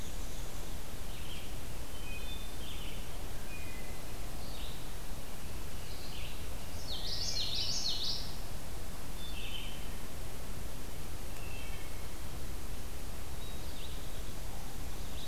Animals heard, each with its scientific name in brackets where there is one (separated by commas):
Wood Thrush (Hylocichla mustelina), Common Yellowthroat (Geothlypis trichas), Red-eyed Vireo (Vireo olivaceus), Black-and-white Warbler (Mniotilta varia)